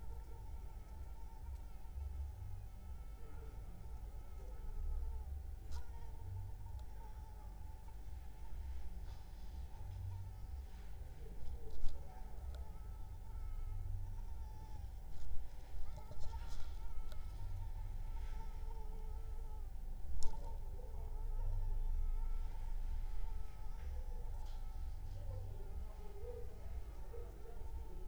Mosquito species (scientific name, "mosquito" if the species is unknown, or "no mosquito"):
Anopheles arabiensis